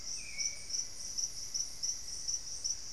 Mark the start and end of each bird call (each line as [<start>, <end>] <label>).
[0.00, 0.99] Hauxwell's Thrush (Turdus hauxwelli)
[0.00, 2.49] Black-faced Antthrush (Formicarius analis)
[0.00, 2.92] Solitary Black Cacique (Cacicus solitarius)
[0.19, 2.92] Plumbeous Pigeon (Patagioenas plumbea)